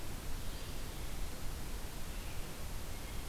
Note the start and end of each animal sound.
0.0s-2.5s: Red-eyed Vireo (Vireo olivaceus)

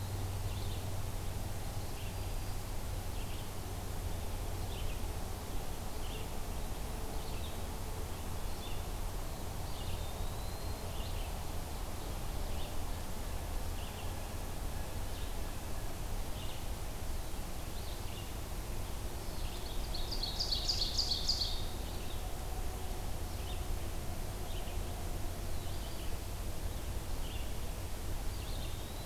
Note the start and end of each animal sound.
0.3s-29.1s: Red-eyed Vireo (Vireo olivaceus)
9.6s-11.0s: Eastern Wood-Pewee (Contopus virens)
19.6s-21.8s: Ovenbird (Seiurus aurocapilla)
28.0s-29.1s: Eastern Wood-Pewee (Contopus virens)

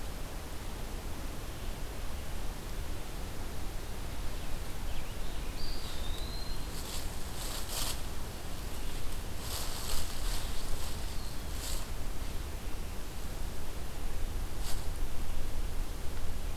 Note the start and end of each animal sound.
5.5s-6.7s: Eastern Wood-Pewee (Contopus virens)
10.8s-11.7s: Eastern Wood-Pewee (Contopus virens)

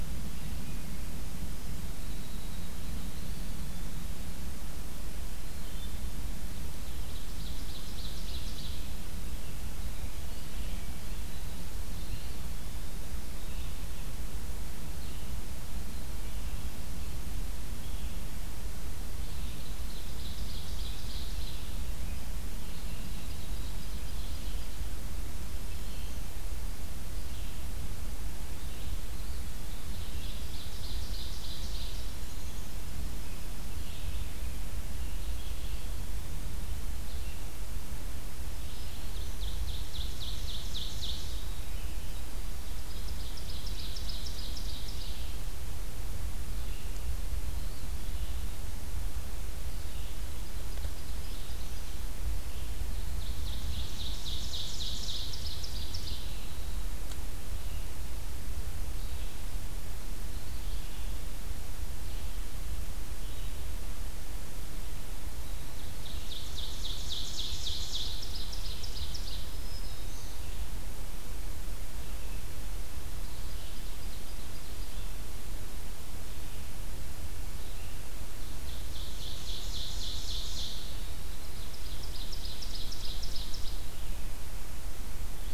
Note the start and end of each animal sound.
0.7s-4.6s: Winter Wren (Troglodytes hiemalis)
5.4s-59.5s: Red-eyed Vireo (Vireo olivaceus)
6.7s-8.8s: Ovenbird (Seiurus aurocapilla)
11.9s-13.3s: Eastern Wood-Pewee (Contopus virens)
19.2s-22.0s: Ovenbird (Seiurus aurocapilla)
22.4s-24.8s: Ovenbird (Seiurus aurocapilla)
29.6s-32.1s: Ovenbird (Seiurus aurocapilla)
32.2s-32.8s: Black-capped Chickadee (Poecile atricapillus)
38.3s-39.5s: Black-throated Green Warbler (Setophaga virens)
38.6s-41.6s: Ovenbird (Seiurus aurocapilla)
42.8s-45.2s: Ovenbird (Seiurus aurocapilla)
50.3s-52.1s: Ovenbird (Seiurus aurocapilla)
53.0s-56.4s: Ovenbird (Seiurus aurocapilla)
60.5s-85.5s: Red-eyed Vireo (Vireo olivaceus)
65.6s-69.5s: Ovenbird (Seiurus aurocapilla)
69.1s-70.4s: Black-throated Green Warbler (Setophaga virens)
78.5s-83.9s: Ovenbird (Seiurus aurocapilla)

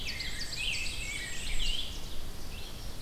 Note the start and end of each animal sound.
0.0s-1.7s: Rose-breasted Grosbeak (Pheucticus ludovicianus)
0.0s-2.1s: Ovenbird (Seiurus aurocapilla)
0.0s-3.0s: Red-eyed Vireo (Vireo olivaceus)
0.1s-1.8s: Black-and-white Warbler (Mniotilta varia)

